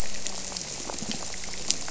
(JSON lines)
{"label": "biophony, squirrelfish (Holocentrus)", "recorder": "SoundTrap 300"}